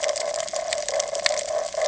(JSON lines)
{"label": "ambient", "recorder": "HydroMoth"}